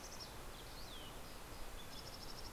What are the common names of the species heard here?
Green-tailed Towhee, Mountain Chickadee, Red-breasted Nuthatch